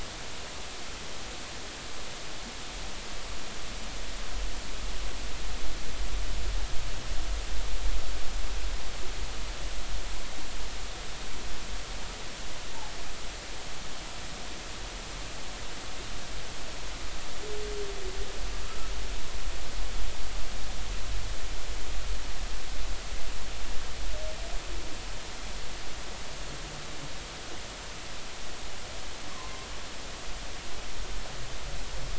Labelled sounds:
29.3	29.7	humpback whale, 0.83 to 1.2 kHz

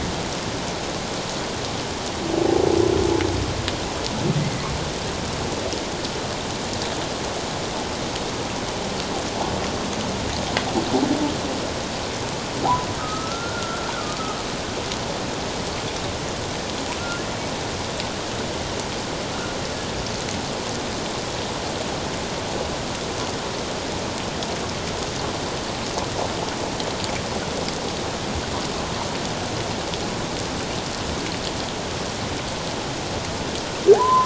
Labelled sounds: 13.0	14.2	humpback whale, 1.2 to 1.5 kHz

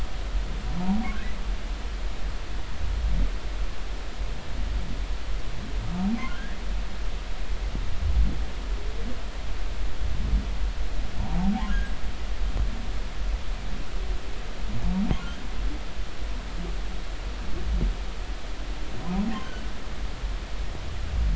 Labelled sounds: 6.3	6.6	humpback whale, 1.3 to 1.9 kHz
11.2	11.5	humpback whale, 0.80 to 1.0 kHz
20.3	20.7	humpback whale, 2.9 to 3.2 kHz

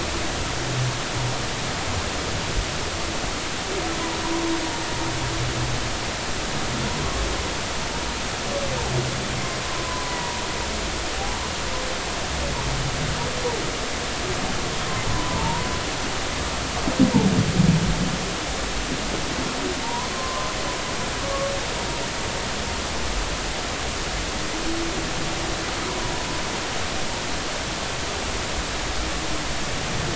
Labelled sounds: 9.6	10.4	humpback whale, 0.90 to 2.0 kHz
15.1	15.7	humpback whale, 0.86 to 1.1 kHz
19.8	20.5	humpback whale, 0.86 to 1.2 kHz

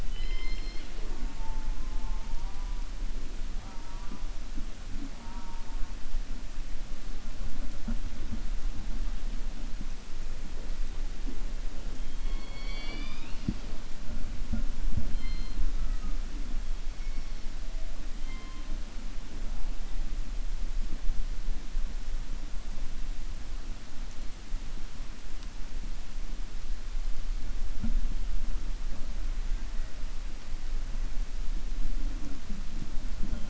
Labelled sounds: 0.0	1.8	killer whale, 0.30 to 5.3 kHz
12.0	13.7	killer whale, 0.44 to 5.7 kHz

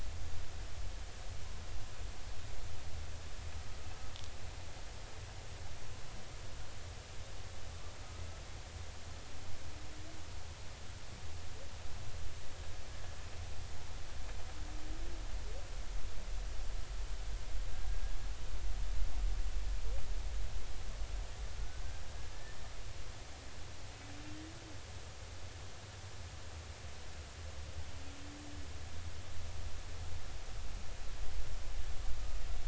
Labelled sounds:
12.9	13.1	humpback whale, 1.6 to 1.8 kHz
21.5	21.8	humpback whale, 1.4 to 1.6 kHz

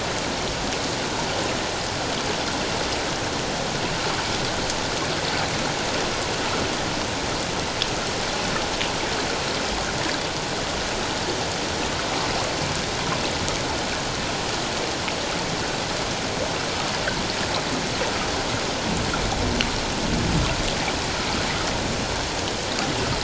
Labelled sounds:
16.9	17.2	water noise, 1.4 to 2.1 kHz

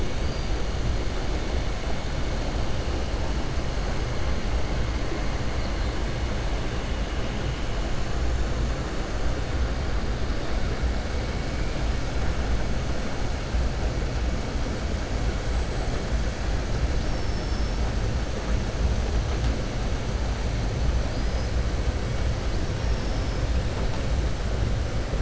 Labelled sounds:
16.9	17.8	killer whale, southern resident, 4.7 to 5.5 kHz

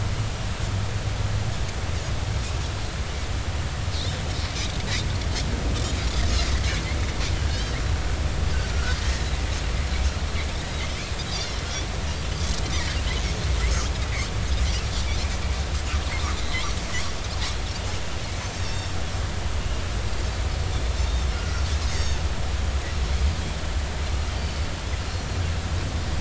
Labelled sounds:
3.9	4.2	Pacific white-sided dolphin, 3.4 to 4.4 kHz
7.5	7.8	Pacific white-sided dolphin, 2.9 to 3.2 kHz
8.7	9.3	Pacific white-sided dolphin, 1.3 to 1.9 kHz
11.2	11.6	Pacific white-sided dolphin, 3.2 to 3.6 kHz
18.4	18.9	Pacific white-sided dolphin, 4.3 to 6.3 kHz
21.1	22.2	Pacific white-sided dolphin, 1.3 to 6.8 kHz
24.4	24.7	Pacific white-sided dolphin, 4.4 to 4.7 kHz

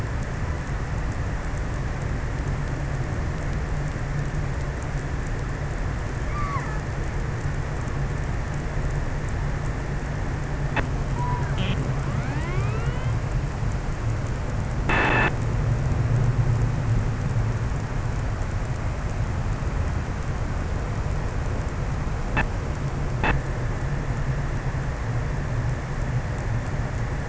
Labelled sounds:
5.9	7.2	killer whale, offshore, 0.73 to 2.4 kHz

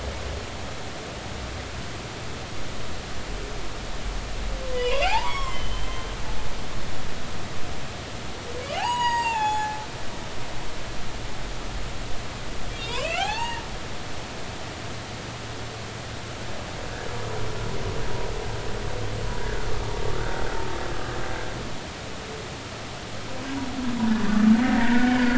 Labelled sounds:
4.7	5.9	humpback whale, 0.80 to 3.4 kHz
8.6	9.8	humpback whale, 0.80 to 7.6 kHz
12.7	13.6	humpback whale, 0.80 to 4.6 kHz
24.1	24.3	humpback whale, 1.6 to 1.9 kHz
24.7	25.0	humpback whale, 1.7 to 2.0 kHz

